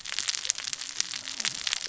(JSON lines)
{"label": "biophony, cascading saw", "recorder": "SoundTrap 600 or HydroMoth"}